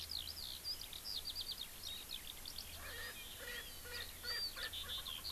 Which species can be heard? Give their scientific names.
Alauda arvensis, Pternistis erckelii